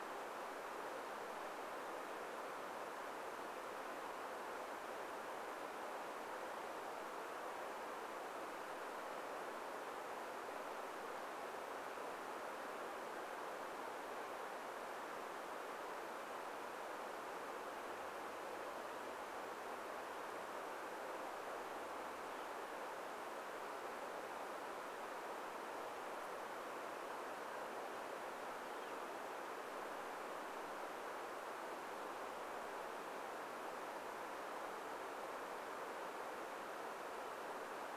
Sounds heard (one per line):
Northern Flicker call